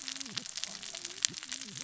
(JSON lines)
{"label": "biophony, cascading saw", "recorder": "SoundTrap 600 or HydroMoth"}